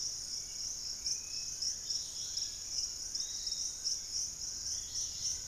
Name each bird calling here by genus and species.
Pachysylvia hypoxantha, Legatus leucophaius, Myiarchus tuberculifer, Turdus hauxwelli, Cymbilaimus lineatus